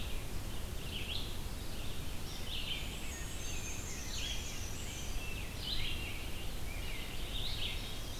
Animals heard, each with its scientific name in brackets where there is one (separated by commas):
Black-and-white Warbler (Mniotilta varia), Rose-breasted Grosbeak (Pheucticus ludovicianus), Red-eyed Vireo (Vireo olivaceus), Chestnut-sided Warbler (Setophaga pensylvanica)